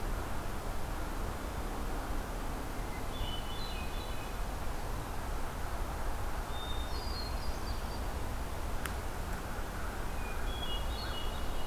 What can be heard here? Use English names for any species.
Hermit Thrush, American Crow